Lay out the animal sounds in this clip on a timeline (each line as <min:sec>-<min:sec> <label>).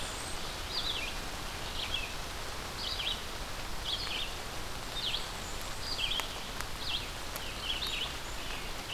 0:00.0-0:00.5 Blackburnian Warbler (Setophaga fusca)
0:00.0-0:08.9 Red-eyed Vireo (Vireo olivaceus)
0:04.8-0:06.2 Black-and-white Warbler (Mniotilta varia)